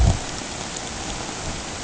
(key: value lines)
label: ambient
recorder: HydroMoth